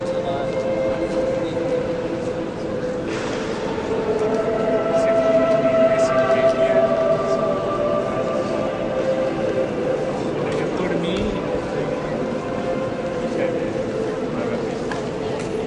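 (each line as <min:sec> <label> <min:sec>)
0:00.0 Ambient sounds in a church. 0:15.7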